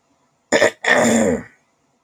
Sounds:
Throat clearing